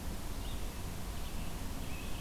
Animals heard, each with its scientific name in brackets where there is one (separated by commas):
Red-eyed Vireo (Vireo olivaceus), Scarlet Tanager (Piranga olivacea)